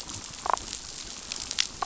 {"label": "biophony, damselfish", "recorder": "SoundTrap 500"}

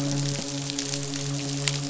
{"label": "biophony, midshipman", "recorder": "SoundTrap 500"}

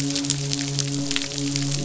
{"label": "biophony, midshipman", "recorder": "SoundTrap 500"}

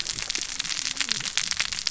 {"label": "biophony, cascading saw", "recorder": "SoundTrap 600 or HydroMoth"}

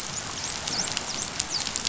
{"label": "biophony, dolphin", "recorder": "SoundTrap 500"}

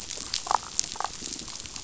{"label": "biophony, damselfish", "recorder": "SoundTrap 500"}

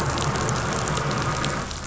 {"label": "anthrophony, boat engine", "recorder": "SoundTrap 500"}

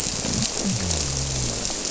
{"label": "biophony", "recorder": "SoundTrap 300"}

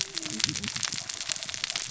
{"label": "biophony, cascading saw", "recorder": "SoundTrap 600 or HydroMoth"}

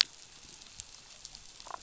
{"label": "biophony, damselfish", "recorder": "SoundTrap 500"}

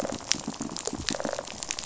{"label": "biophony, rattle response", "recorder": "SoundTrap 500"}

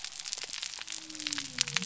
{"label": "biophony", "recorder": "SoundTrap 300"}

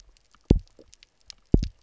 {"label": "biophony, double pulse", "recorder": "SoundTrap 300"}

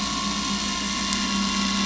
{"label": "anthrophony, boat engine", "recorder": "SoundTrap 500"}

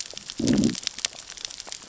{"label": "biophony, growl", "recorder": "SoundTrap 600 or HydroMoth"}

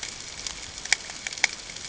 {"label": "ambient", "recorder": "HydroMoth"}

